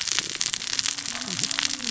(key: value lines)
label: biophony, cascading saw
recorder: SoundTrap 600 or HydroMoth